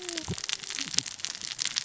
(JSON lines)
{"label": "biophony, cascading saw", "recorder": "SoundTrap 600 or HydroMoth"}